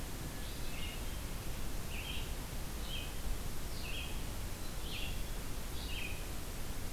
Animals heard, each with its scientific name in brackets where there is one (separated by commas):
Red-eyed Vireo (Vireo olivaceus), Hermit Thrush (Catharus guttatus)